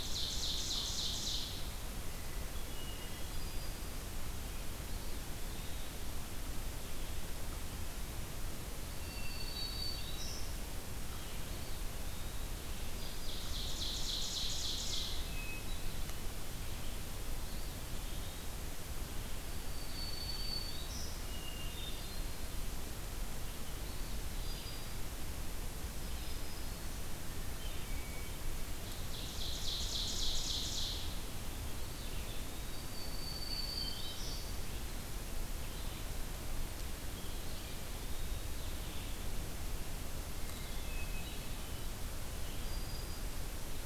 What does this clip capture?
Ovenbird, Hermit Thrush, Black-throated Green Warbler, Eastern Wood-Pewee, Blue-headed Vireo